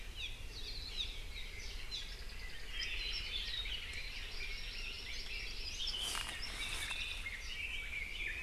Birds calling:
Red-billed Leiothrix (Leiothrix lutea), Hawaii Akepa (Loxops coccineus), Hawaii Amakihi (Chlorodrepanis virens), Omao (Myadestes obscurus), Apapane (Himatione sanguinea)

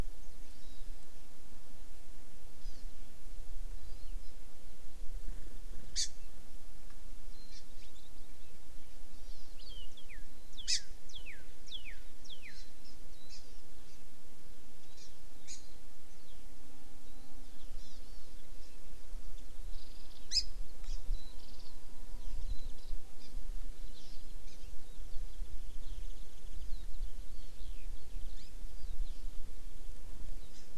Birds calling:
Northern Cardinal (Cardinalis cardinalis), Eurasian Skylark (Alauda arvensis), Hawaii Amakihi (Chlorodrepanis virens), Warbling White-eye (Zosterops japonicus)

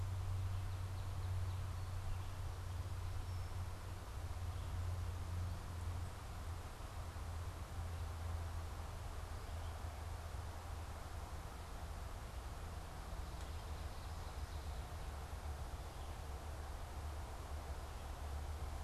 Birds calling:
Ovenbird (Seiurus aurocapilla), Northern Cardinal (Cardinalis cardinalis)

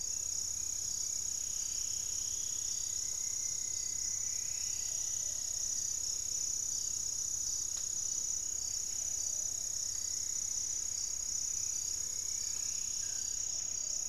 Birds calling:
unidentified bird, Buff-throated Woodcreeper (Xiphorhynchus guttatus), Gray-fronted Dove (Leptotila rufaxilla), Buff-breasted Wren (Cantorchilus leucotis), Plumbeous Pigeon (Patagioenas plumbea), Striped Woodcreeper (Xiphorhynchus obsoletus), White-flanked Antwren (Myrmotherula axillaris), Plumbeous Antbird (Myrmelastes hyperythrus)

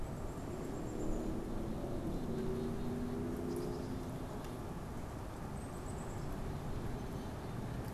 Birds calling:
Black-capped Chickadee (Poecile atricapillus)

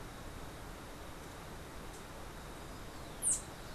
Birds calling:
unidentified bird

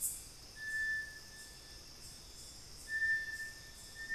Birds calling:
Little Tinamou (Crypturellus soui)

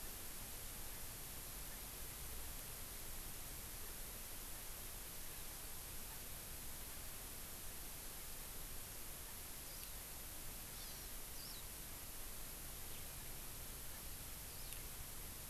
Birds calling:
Hawaii Amakihi (Chlorodrepanis virens), House Finch (Haemorhous mexicanus)

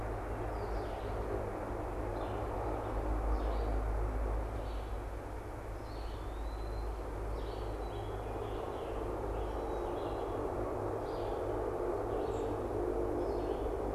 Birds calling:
Scarlet Tanager (Piranga olivacea), Eastern Wood-Pewee (Contopus virens), Red-eyed Vireo (Vireo olivaceus)

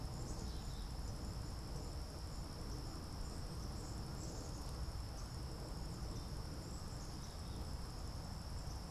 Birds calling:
Swamp Sparrow (Melospiza georgiana), Black-capped Chickadee (Poecile atricapillus)

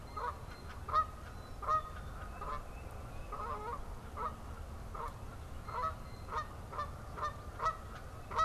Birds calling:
Canada Goose (Branta canadensis), Black-capped Chickadee (Poecile atricapillus), Blue Jay (Cyanocitta cristata)

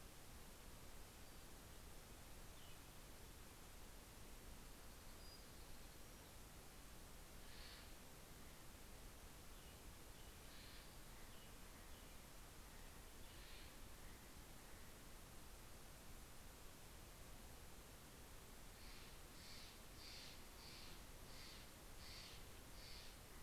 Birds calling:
Townsend's Warbler (Setophaga townsendi), Steller's Jay (Cyanocitta stelleri)

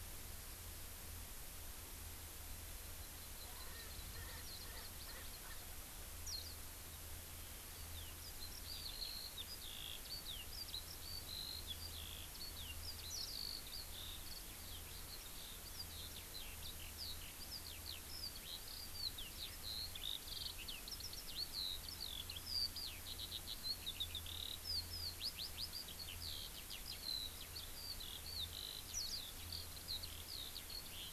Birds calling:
Eurasian Skylark (Alauda arvensis), Hawaii Amakihi (Chlorodrepanis virens), Warbling White-eye (Zosterops japonicus), Erckel's Francolin (Pternistis erckelii)

